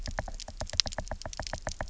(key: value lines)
label: biophony, knock
recorder: SoundTrap 300